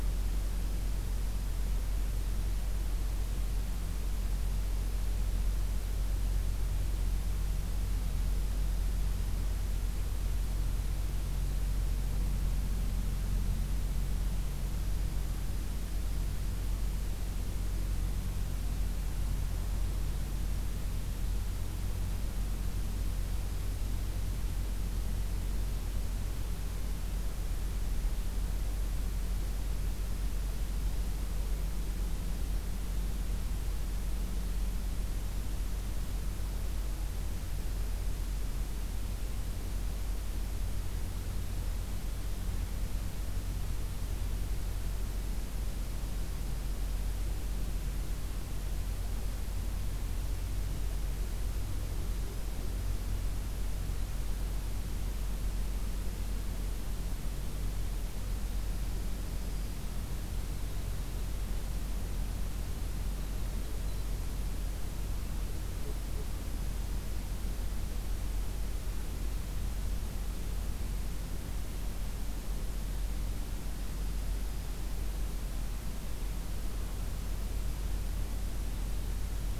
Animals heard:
forest ambience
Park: Acadia National Park